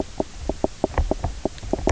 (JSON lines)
{"label": "biophony, knock croak", "recorder": "SoundTrap 300"}